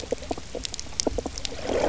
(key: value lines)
label: biophony, knock croak
recorder: SoundTrap 300